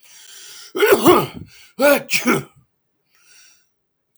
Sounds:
Sneeze